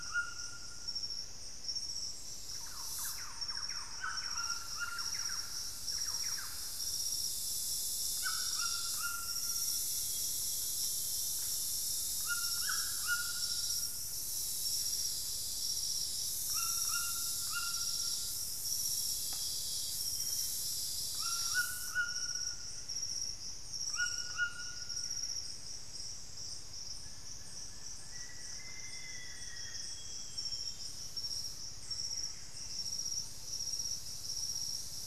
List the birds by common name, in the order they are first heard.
White-throated Toucan, Thrush-like Wren, unidentified bird, Amazonian Grosbeak, Buff-breasted Wren, Plain-winged Antshrike, Black-faced Antthrush